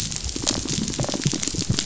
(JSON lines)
{"label": "biophony, rattle response", "recorder": "SoundTrap 500"}